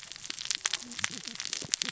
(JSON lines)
{"label": "biophony, cascading saw", "recorder": "SoundTrap 600 or HydroMoth"}